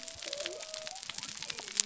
{"label": "biophony", "recorder": "SoundTrap 300"}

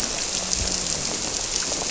{"label": "biophony, grouper", "recorder": "SoundTrap 300"}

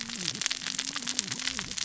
{"label": "biophony, cascading saw", "recorder": "SoundTrap 600 or HydroMoth"}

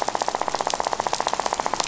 {"label": "biophony, rattle", "recorder": "SoundTrap 500"}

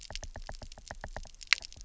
{"label": "biophony, knock", "recorder": "SoundTrap 300"}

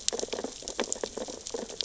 {"label": "biophony, sea urchins (Echinidae)", "recorder": "SoundTrap 600 or HydroMoth"}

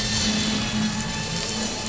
{"label": "anthrophony, boat engine", "recorder": "SoundTrap 500"}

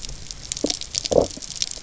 {"label": "biophony, low growl", "recorder": "SoundTrap 300"}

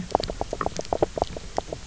{"label": "biophony, knock croak", "recorder": "SoundTrap 300"}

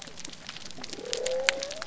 {"label": "biophony", "recorder": "SoundTrap 300"}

